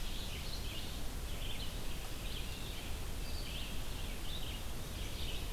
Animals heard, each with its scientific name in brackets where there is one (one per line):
Red-eyed Vireo (Vireo olivaceus)